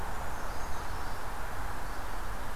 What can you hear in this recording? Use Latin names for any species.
Certhia americana